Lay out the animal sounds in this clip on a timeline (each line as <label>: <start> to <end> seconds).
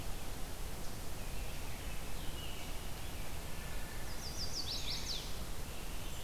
Blue-headed Vireo (Vireo solitarius): 0.0 to 6.2 seconds
American Robin (Turdus migratorius): 1.1 to 3.3 seconds
Wood Thrush (Hylocichla mustelina): 3.4 to 4.1 seconds
Chestnut-sided Warbler (Setophaga pensylvanica): 4.0 to 5.3 seconds
American Robin (Turdus migratorius): 5.7 to 6.2 seconds